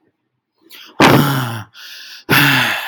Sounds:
Sigh